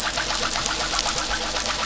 {"label": "anthrophony, boat engine", "recorder": "SoundTrap 500"}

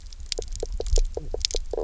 {"label": "biophony, knock croak", "recorder": "SoundTrap 300"}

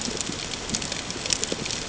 {"label": "ambient", "recorder": "HydroMoth"}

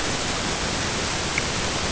{"label": "ambient", "recorder": "HydroMoth"}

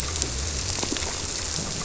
{"label": "biophony", "recorder": "SoundTrap 300"}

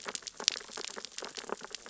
{"label": "biophony, sea urchins (Echinidae)", "recorder": "SoundTrap 600 or HydroMoth"}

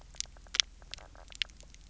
{"label": "biophony, knock croak", "recorder": "SoundTrap 300"}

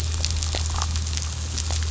{"label": "anthrophony, boat engine", "recorder": "SoundTrap 500"}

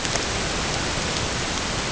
{"label": "ambient", "recorder": "HydroMoth"}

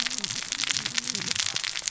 {"label": "biophony, cascading saw", "recorder": "SoundTrap 600 or HydroMoth"}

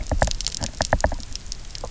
{"label": "biophony, knock", "recorder": "SoundTrap 300"}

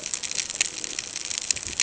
{"label": "ambient", "recorder": "HydroMoth"}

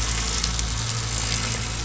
{"label": "anthrophony, boat engine", "recorder": "SoundTrap 500"}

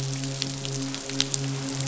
{"label": "biophony, midshipman", "recorder": "SoundTrap 500"}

